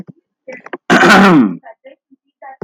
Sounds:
Throat clearing